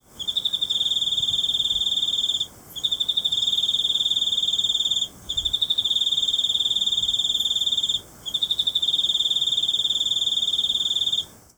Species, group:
Teleogryllus commodus, Orthoptera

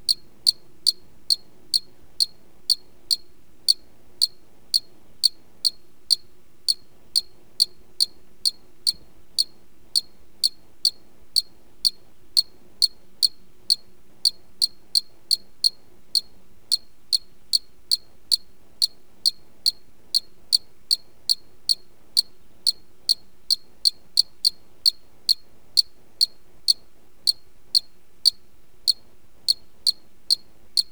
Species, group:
Loxoblemmus arietulus, Orthoptera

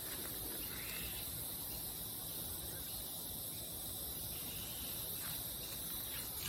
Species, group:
Psaltoda plaga, Cicadidae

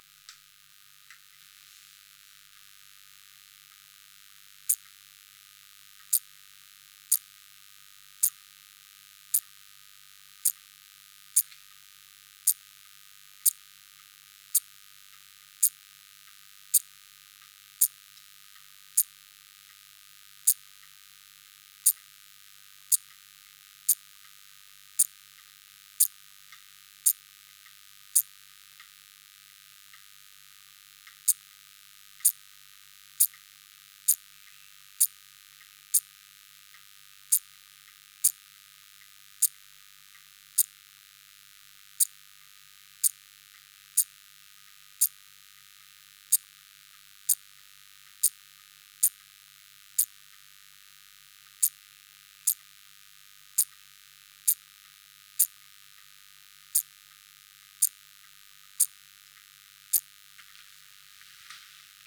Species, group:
Eupholidoptera garganica, Orthoptera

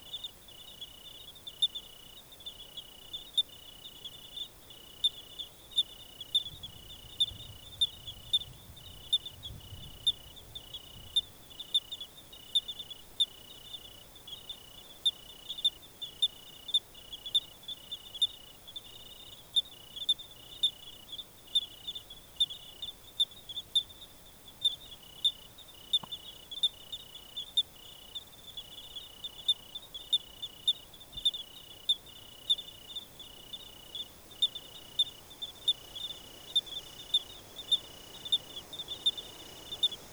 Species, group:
Eugryllodes pipiens, Orthoptera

